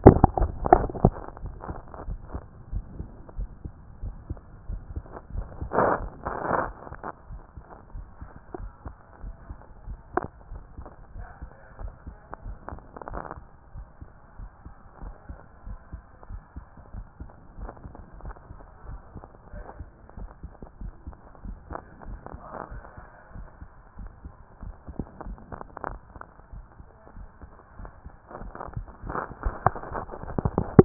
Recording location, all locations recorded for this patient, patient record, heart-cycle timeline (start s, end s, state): pulmonary valve (PV)
aortic valve (AV)+pulmonary valve (PV)+tricuspid valve (TV)+mitral valve (MV)
#Age: nan
#Sex: Female
#Height: nan
#Weight: nan
#Pregnancy status: True
#Murmur: Absent
#Murmur locations: nan
#Most audible location: nan
#Systolic murmur timing: nan
#Systolic murmur shape: nan
#Systolic murmur grading: nan
#Systolic murmur pitch: nan
#Systolic murmur quality: nan
#Diastolic murmur timing: nan
#Diastolic murmur shape: nan
#Diastolic murmur grading: nan
#Diastolic murmur pitch: nan
#Diastolic murmur quality: nan
#Outcome: Normal
#Campaign: 2014 screening campaign
0.00	1.20	unannotated
1.20	1.42	diastole
1.42	1.54	S1
1.54	1.68	systole
1.68	1.78	S2
1.78	2.06	diastole
2.06	2.20	S1
2.20	2.32	systole
2.32	2.42	S2
2.42	2.72	diastole
2.72	2.84	S1
2.84	2.98	systole
2.98	3.08	S2
3.08	3.36	diastole
3.36	3.50	S1
3.50	3.64	systole
3.64	3.72	S2
3.72	4.02	diastole
4.02	4.16	S1
4.16	4.28	systole
4.28	4.38	S2
4.38	4.68	diastole
4.68	4.82	S1
4.82	4.94	systole
4.94	5.02	S2
5.02	5.34	diastole
5.34	5.48	S1
5.48	5.62	systole
5.62	5.70	S2
5.70	6.00	diastole
6.00	6.08	S1
6.08	6.24	systole
6.24	6.30	S2
6.30	6.54	diastole
6.54	6.70	S1
6.70	6.88	systole
6.88	6.96	S2
6.96	7.30	diastole
7.30	7.42	S1
7.42	7.56	systole
7.56	7.64	S2
7.64	7.94	diastole
7.94	8.06	S1
8.06	8.20	systole
8.20	8.30	S2
8.30	8.58	diastole
8.58	8.72	S1
8.72	8.86	systole
8.86	8.94	S2
8.94	9.24	diastole
9.24	9.36	S1
9.36	9.48	systole
9.48	9.58	S2
9.58	9.86	diastole
9.86	9.98	S1
9.98	10.14	systole
10.14	10.24	S2
10.24	10.50	diastole
10.50	10.64	S1
10.64	10.78	systole
10.78	10.88	S2
10.88	11.16	diastole
11.16	11.28	S1
11.28	11.42	systole
11.42	11.50	S2
11.50	11.80	diastole
11.80	11.92	S1
11.92	12.06	systole
12.06	12.16	S2
12.16	12.44	diastole
12.44	12.58	S1
12.58	12.70	systole
12.70	12.80	S2
12.80	13.10	diastole
13.10	13.22	S1
13.22	13.36	systole
13.36	13.48	S2
13.48	13.74	diastole
13.74	13.86	S1
13.86	14.02	systole
14.02	14.12	S2
14.12	14.38	diastole
14.38	14.50	S1
14.50	14.64	systole
14.64	14.74	S2
14.74	15.02	diastole
15.02	15.14	S1
15.14	15.28	systole
15.28	15.38	S2
15.38	15.66	diastole
15.66	15.78	S1
15.78	15.92	systole
15.92	16.02	S2
16.02	16.30	diastole
16.30	16.42	S1
16.42	16.56	systole
16.56	16.66	S2
16.66	16.94	diastole
16.94	17.06	S1
17.06	17.20	systole
17.20	17.30	S2
17.30	17.58	diastole
17.58	17.70	S1
17.70	17.86	systole
17.86	17.94	S2
17.94	18.24	diastole
18.24	18.36	S1
18.36	18.50	systole
18.50	18.60	S2
18.60	18.88	diastole
18.88	19.00	S1
19.00	19.14	systole
19.14	19.24	S2
19.24	19.54	diastole
19.54	19.66	S1
19.66	19.78	systole
19.78	19.88	S2
19.88	20.18	diastole
20.18	20.30	S1
20.30	20.42	systole
20.42	20.52	S2
20.52	20.82	diastole
20.82	20.94	S1
20.94	21.06	systole
21.06	21.16	S2
21.16	21.46	diastole
21.46	21.58	S1
21.58	21.70	systole
21.70	21.80	S2
21.80	22.08	diastole
22.08	22.20	S1
22.20	22.34	systole
22.34	22.42	S2
22.42	22.72	diastole
22.72	22.82	S1
22.82	23.00	systole
23.00	23.10	S2
23.10	23.36	diastole
23.36	23.46	S1
23.46	23.60	systole
23.60	23.70	S2
23.70	23.98	diastole
23.98	24.10	S1
24.10	24.24	systole
24.24	24.34	S2
24.34	24.64	diastole
24.64	24.74	S1
24.74	24.96	systole
24.96	25.06	S2
25.06	25.26	diastole
25.26	25.38	S1
25.38	25.52	systole
25.52	25.62	S2
25.62	25.88	diastole
25.88	26.00	S1
26.00	26.18	systole
26.18	26.26	S2
26.26	26.54	diastole
26.54	26.64	S1
26.64	26.82	systole
26.82	26.90	S2
26.90	27.16	diastole
27.16	27.28	S1
27.28	27.44	systole
27.44	27.54	S2
27.54	27.80	diastole
27.80	27.90	S1
27.90	28.06	systole
28.06	28.14	S2
28.14	28.40	diastole
28.40	30.85	unannotated